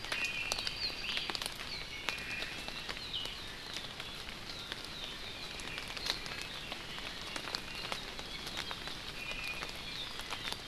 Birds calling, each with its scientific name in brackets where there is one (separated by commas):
Apapane (Himatione sanguinea), Iiwi (Drepanis coccinea)